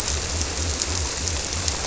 {"label": "biophony", "recorder": "SoundTrap 300"}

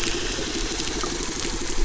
{"label": "anthrophony, boat engine", "recorder": "SoundTrap 300"}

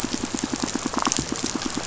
{"label": "biophony, pulse", "recorder": "SoundTrap 500"}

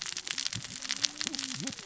{"label": "biophony, cascading saw", "recorder": "SoundTrap 600 or HydroMoth"}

